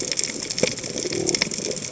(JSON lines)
{"label": "biophony", "recorder": "HydroMoth"}